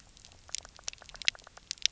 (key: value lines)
label: biophony, knock
recorder: SoundTrap 300